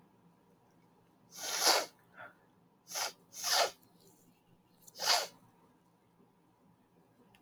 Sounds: Sniff